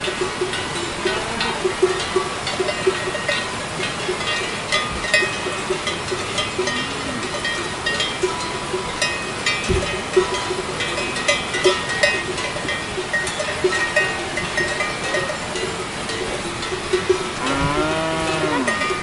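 A high-pitched cowbell chimes. 0:00.0 - 0:19.0
Constant static noise. 0:00.0 - 0:19.0
A muffled and quiet cow mooing. 0:06.6 - 0:07.2
A cow moos loudly and clearly. 0:17.5 - 0:18.9

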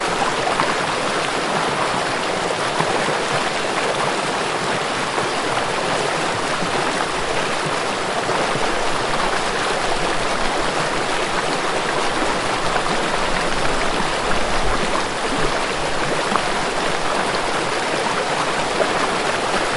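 Water falling from a waterfall. 0:00.0 - 0:19.8
A stream of water is flowing. 0:00.1 - 0:19.8

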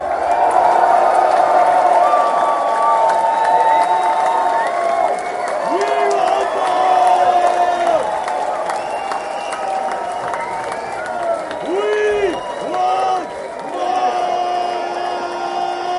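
Continuous applause with rhythmic clapping and occasional changes in intensity. 0:00.0 - 0:16.0
A crowd screams with high-pitched, intense cries of excitement. 0:00.0 - 0:16.0
A man yells and cheers loudly with excited shouts. 0:05.5 - 0:08.4
A man is yelling and cheering loudly with excited shouts. 0:11.5 - 0:16.0

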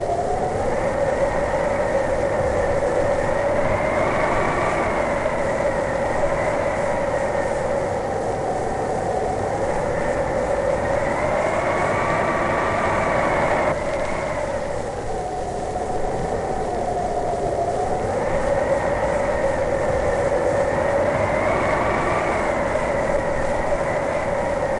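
Humming. 0:00.0 - 0:24.8
Wind blowing. 0:00.0 - 0:24.8

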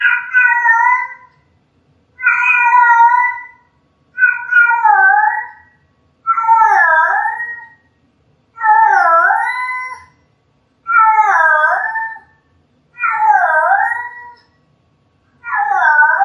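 High-pitched, clear cat meowing with occasional, roughly one-second pauses. 0:00.0 - 0:16.2

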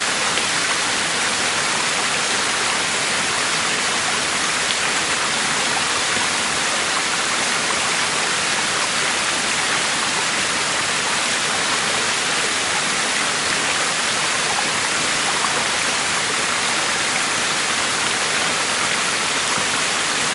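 Water drops loudly into a river from a waterfall. 0:00.0 - 0:20.3

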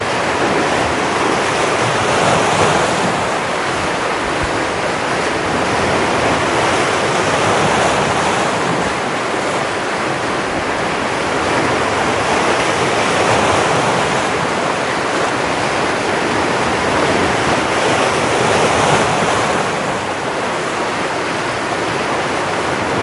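Waves crash against the shore with rhythmic ocean sounds. 0:00.0 - 0:23.0

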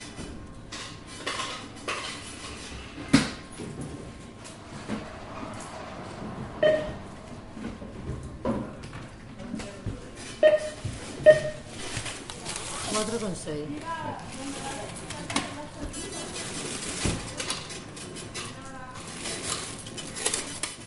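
A machine is buzzing. 0:00.0 - 0:03.1
A continuous quiet white noise from ventilation. 0:00.0 - 0:20.9
Metallic clinking of coins. 0:00.7 - 0:02.3
A distant muffled horn honks once. 0:03.0 - 0:03.2
A lid shuts loudly indoors. 0:03.1 - 0:03.4
Quiet distant thumping. 0:03.5 - 0:10.2
A car passes by. 0:04.4 - 0:08.1
A cash machine beeps. 0:06.6 - 0:06.9
People are talking in the distance. 0:08.2 - 0:11.3
Receipt machines whirring and printing. 0:10.2 - 0:12.5
A cash machine beeps. 0:10.4 - 0:11.6
Paper rustling. 0:12.0 - 0:13.2
A woman is talking nearby. 0:12.8 - 0:14.1
A woman is talking in the distance. 0:13.8 - 0:16.7
Paper rustling. 0:14.1 - 0:15.2
A lid shuts loudly indoors. 0:15.3 - 0:15.7
Receipt machines whirring and printing. 0:15.8 - 0:20.9
A woman is speaking in the distance. 0:18.3 - 0:19.5
Metallic clacking of coins. 0:19.4 - 0:20.9

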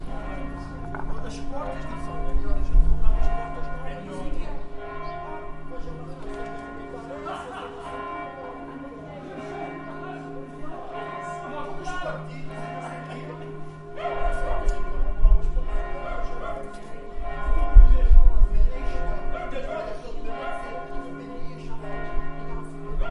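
A church bell rings repeatedly in the distance. 0:00.0 - 0:23.1
Several people are conversing outdoors. 0:00.0 - 0:23.1
A person laughs in a crowd outdoors. 0:07.1 - 0:08.5
A dog barks outdoors. 0:14.0 - 0:14.8
A dog barks outdoors. 0:16.0 - 0:16.8
A dog barks outdoors. 0:19.2 - 0:20.9
A dog barks outdoors. 0:22.9 - 0:23.1

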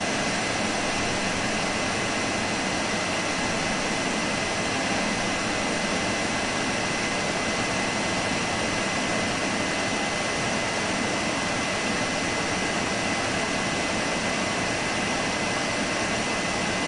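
A machine operates with irregular noise. 0:00.0 - 0:16.9

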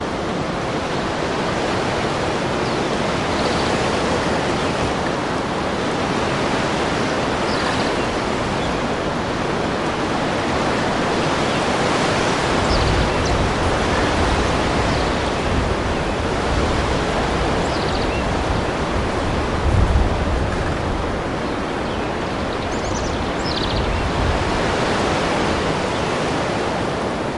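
Wind is blowing outdoors. 0:00.0 - 0:02.6
Wind blows loudly and birds are creaking outdoors. 0:03.8 - 0:08.9
Wind is blowing loudly and birds are creaking. 0:10.0 - 0:15.6
Wind is blowing and birds are creaking. 0:16.8 - 0:21.4
Wind is blowing and birds are creaking. 0:22.3 - 0:27.4

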